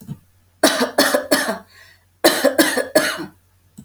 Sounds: Cough